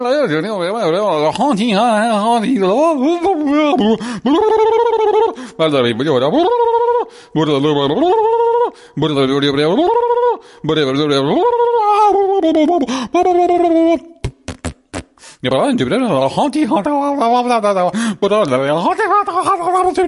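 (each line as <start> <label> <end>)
0.0 A man speaks enthusiastically in a made-up language. 4.2
4.2 A man makes silly, loud sounds with his tongue and mouth. 5.4
5.4 A man takes a deep breath. 5.6
5.6 A man speaks enthusiastically in a made-up language. 6.3
6.3 A man makes silly sounds with his tongue and mouth. 7.0
7.3 A man speaks enthusiastically in a made-up language. 8.0
8.0 A man makes silly, loud sounds with his tongue and mouth. 8.7
8.9 A man speaks enthusiastically in a made-up language. 9.7
9.8 A man makes silly, loud sounds with his tongue and mouth. 10.4
10.6 A man speaks enthusiastically in a made-up language. 11.3
11.3 A man makes silly, loud sounds with his tongue and mouth. 14.0
14.2 A man repeatedly makes fart sounds with his mouth. 15.1
15.4 A man speaks enthusiastically in a made-up language. 20.1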